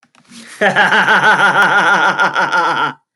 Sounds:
Laughter